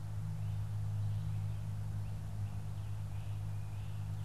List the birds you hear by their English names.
Great Crested Flycatcher